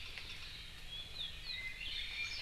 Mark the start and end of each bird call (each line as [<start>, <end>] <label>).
[1.80, 2.40] Iiwi (Drepanis coccinea)